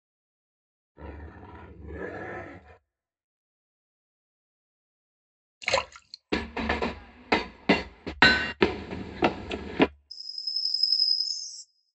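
At 0.94 seconds, quiet growling can be heard. Then, at 5.6 seconds, splashing is audible. After that, at 6.32 seconds, you can hear a train. Afterwards, at 8.19 seconds, the sound of a hammer is heard. Later, at 8.6 seconds, someone runs. Finally, at 10.1 seconds, chirping is audible.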